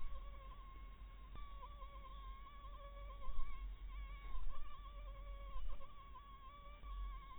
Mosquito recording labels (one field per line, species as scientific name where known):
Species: Anopheles maculatus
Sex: female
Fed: blood-fed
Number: one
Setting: cup